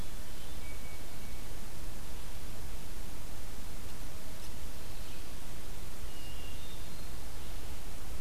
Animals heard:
Red-eyed Vireo (Vireo olivaceus), Hermit Thrush (Catharus guttatus)

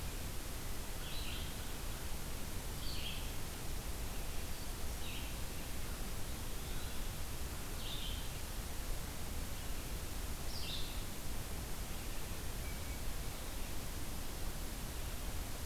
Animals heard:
Eastern Wood-Pewee (Contopus virens), Red-eyed Vireo (Vireo olivaceus)

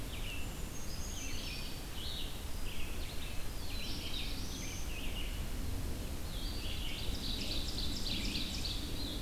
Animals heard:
Black-throated Blue Warbler (Setophaga caerulescens), Brown Creeper (Certhia americana), Red-eyed Vireo (Vireo olivaceus), Ovenbird (Seiurus aurocapilla)

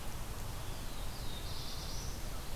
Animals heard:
Black-throated Blue Warbler (Setophaga caerulescens), Red-eyed Vireo (Vireo olivaceus)

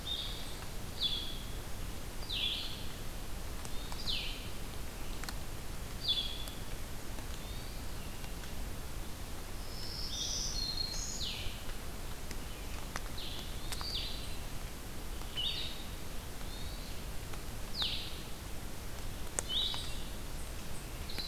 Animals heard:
Blue-headed Vireo (Vireo solitarius), Hermit Thrush (Catharus guttatus), Black-throated Green Warbler (Setophaga virens)

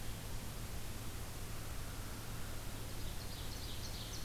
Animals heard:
American Crow (Corvus brachyrhynchos), Ovenbird (Seiurus aurocapilla)

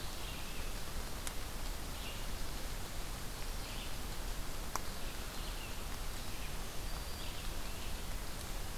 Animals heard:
Red-eyed Vireo (Vireo olivaceus), Black-throated Green Warbler (Setophaga virens)

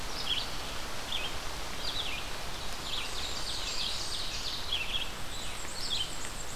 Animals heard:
Red-eyed Vireo (Vireo olivaceus), Black-and-white Warbler (Mniotilta varia), Blackburnian Warbler (Setophaga fusca), Ovenbird (Seiurus aurocapilla)

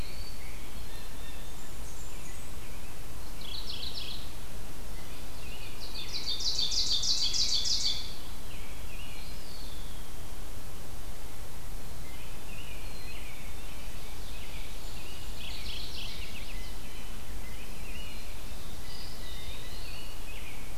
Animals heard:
Blackburnian Warbler (Setophaga fusca), Ovenbird (Seiurus aurocapilla), Blue Jay (Cyanocitta cristata), Eastern Wood-Pewee (Contopus virens), Black-capped Chickadee (Poecile atricapillus), Mourning Warbler (Geothlypis philadelphia), Chestnut-sided Warbler (Setophaga pensylvanica), American Robin (Turdus migratorius)

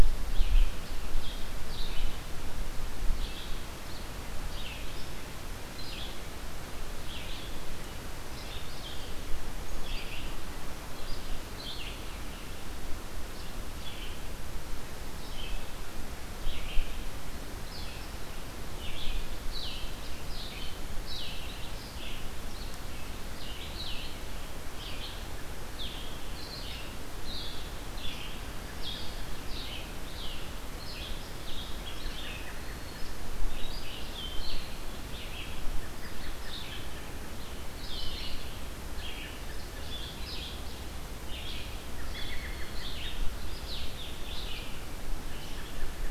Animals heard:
Black-throated Green Warbler (Setophaga virens), Blue-headed Vireo (Vireo solitarius), Red-eyed Vireo (Vireo olivaceus), American Robin (Turdus migratorius)

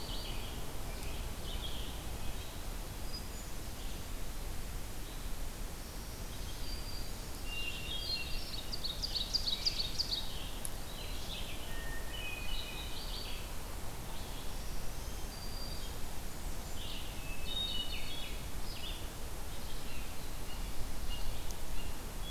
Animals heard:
Scarlet Tanager (Piranga olivacea), Hermit Thrush (Catharus guttatus), Blue Jay (Cyanocitta cristata), Ovenbird (Seiurus aurocapilla), Red-eyed Vireo (Vireo olivaceus), Black-throated Green Warbler (Setophaga virens), Blackburnian Warbler (Setophaga fusca)

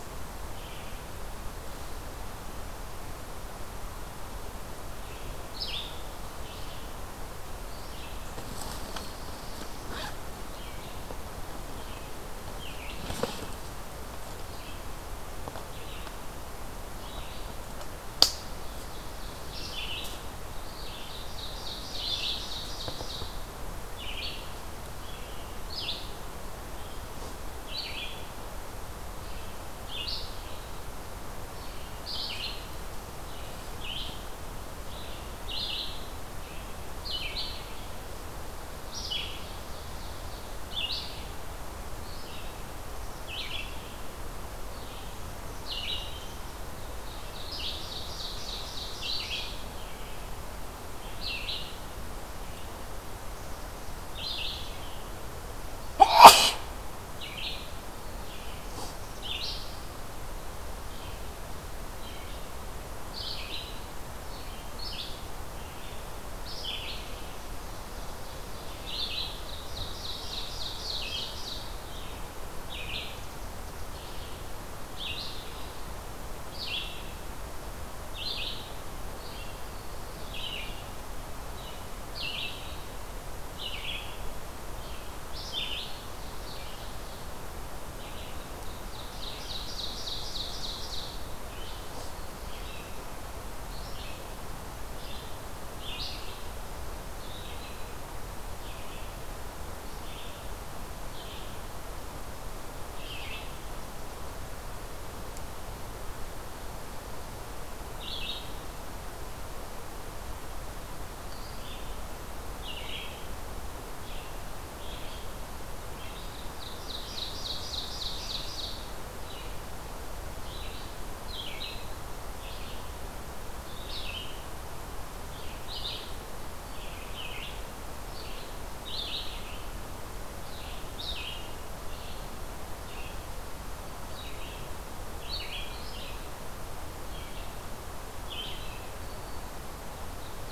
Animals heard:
Black-throated Blue Warbler (Setophaga caerulescens), Red-eyed Vireo (Vireo olivaceus), Ovenbird (Seiurus aurocapilla)

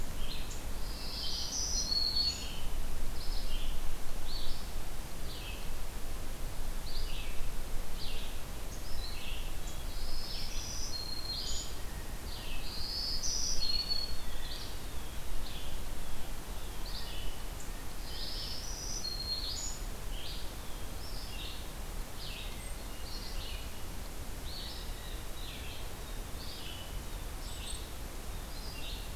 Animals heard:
Blue Jay (Cyanocitta cristata), Hermit Thrush (Catharus guttatus), Black-throated Green Warbler (Setophaga virens), Red-eyed Vireo (Vireo olivaceus)

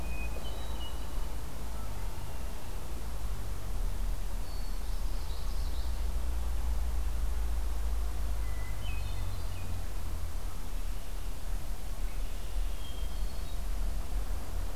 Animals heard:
Hermit Thrush (Catharus guttatus), Red-winged Blackbird (Agelaius phoeniceus), Common Yellowthroat (Geothlypis trichas)

